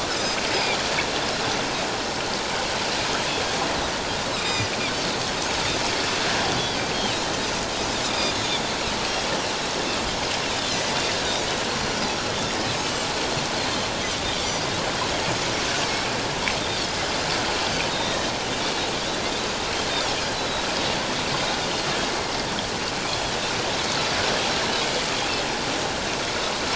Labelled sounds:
0.1	0.4	Pacific white-sided dolphin, 4.8 to 5.3 kHz
4.3	4.7	Pacific white-sided dolphin, 1.9 to 6.2 kHz
8.1	8.3	Pacific white-sided dolphin, 3.4 to 5.0 kHz
10.7	11.0	Pacific white-sided dolphin, 1.9 to 2.1 kHz
14.4	14.7	Pacific white-sided dolphin, 4.6 to 4.8 kHz
17.9	18.3	Pacific white-sided dolphin, 1.8 to 3.8 kHz
20.3	20.6	Pacific white-sided dolphin, 3.8 to 4.1 kHz
23.1	23.3	Pacific white-sided dolphin, 3.2 to 3.4 kHz

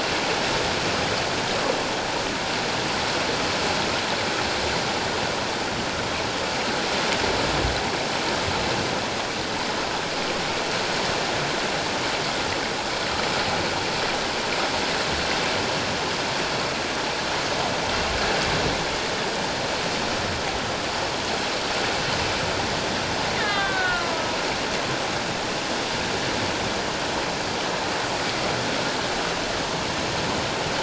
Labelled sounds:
23.3	24.1	killer whale, Bigg's (transient), 1.0 to 3.7 kHz

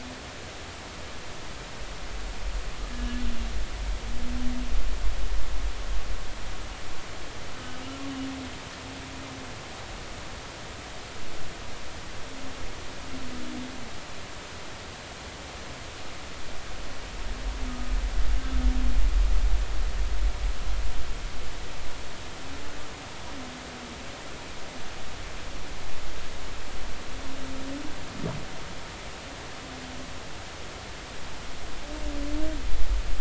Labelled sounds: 2.9	3.2	humpback whale, 2.8 to 3.0 kHz
17.7	17.9	humpback whale, 1.2 to 1.3 kHz

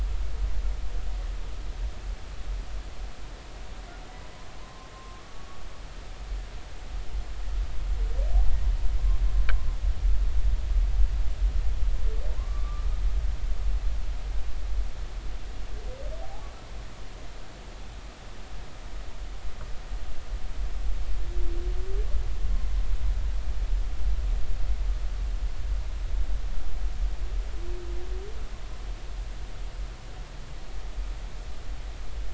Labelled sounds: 4.6	5.2	humpback whale, 0.90 to 1.1 kHz
12.4	12.8	humpback whale, 0.99 to 1.2 kHz
16.2	16.5	humpback whale, 0.80 to 0.90 kHz

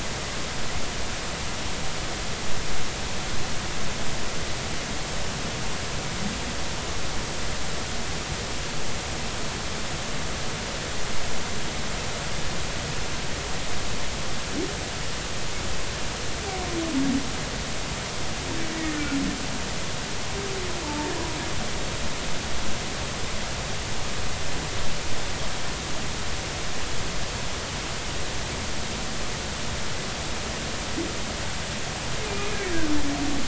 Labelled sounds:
18.7	19.2	humpback whale, 1.4 to 2.0 kHz
20.8	21.1	humpback whale, 0.83 to 0.99 kHz
32.3	32.6	humpback whale, 2.3 to 2.6 kHz

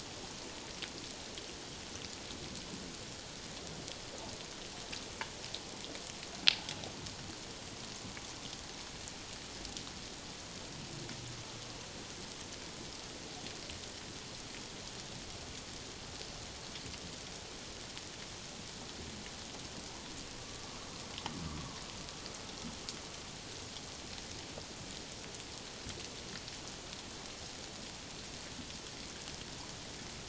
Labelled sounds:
20.4	20.7	humpback whale, 1.1 to 1.2 kHz

